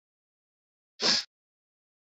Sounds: Sniff